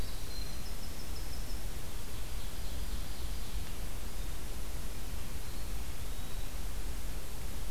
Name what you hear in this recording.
Winter Wren, Ovenbird, Eastern Wood-Pewee